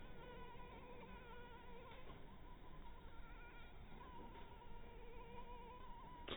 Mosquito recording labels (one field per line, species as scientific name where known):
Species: mosquito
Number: one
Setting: cup